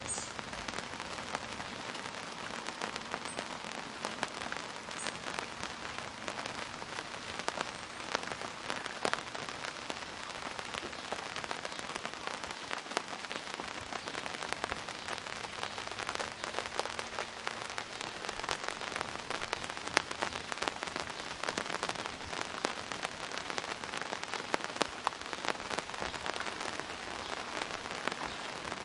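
Rain falling. 0.1 - 28.8

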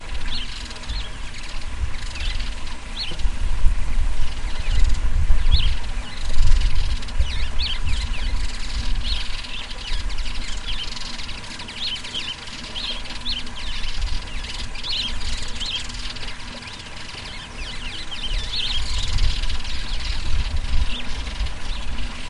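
A flock of birds is singing. 0.0 - 22.3
A quiet rattling noise. 0.0 - 22.3

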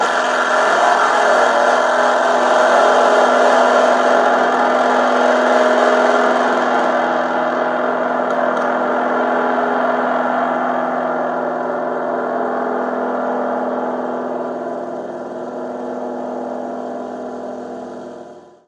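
Electrical fuzz noise starts loudly and gradually decreases. 0.0 - 18.7

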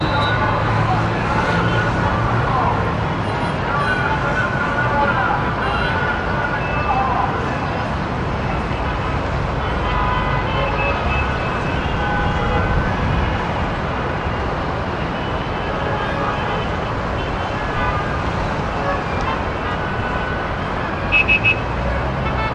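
A car horn sounds. 0.0 - 0.2
Heavy traffic with car horns, a revving motorbike, and a loud crowd filling the bustling city streets. 0.0 - 22.5
A man loudly speaking through a microphone on the street. 0.0 - 3.1
A motorbike is running. 1.3 - 1.9
A car horn sounds. 1.5 - 2.1
A man loudly announcing through a microphone. 3.7 - 7.2
A car horn sounds. 5.7 - 7.3
A car horn sounds. 8.7 - 13.4
A car horn sounds. 15.0 - 22.5

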